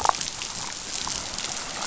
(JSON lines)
{"label": "biophony, damselfish", "recorder": "SoundTrap 500"}